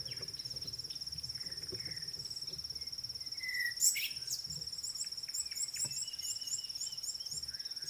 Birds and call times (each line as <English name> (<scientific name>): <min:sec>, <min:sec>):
African Bare-eyed Thrush (Turdus tephronotus): 0:03.5
Red-cheeked Cordonbleu (Uraeginthus bengalus): 0:05.8